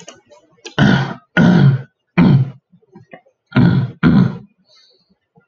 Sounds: Throat clearing